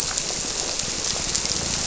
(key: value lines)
label: biophony
recorder: SoundTrap 300